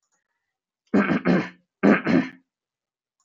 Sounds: Throat clearing